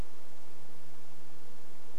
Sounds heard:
forest ambience